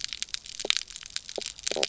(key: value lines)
label: biophony, knock croak
recorder: SoundTrap 300